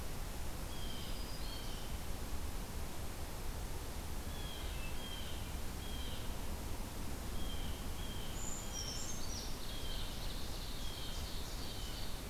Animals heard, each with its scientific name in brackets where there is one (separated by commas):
Black-throated Green Warbler (Setophaga virens), Brown Creeper (Certhia americana), Hermit Thrush (Catharus guttatus), Ovenbird (Seiurus aurocapilla), Blue Jay (Cyanocitta cristata)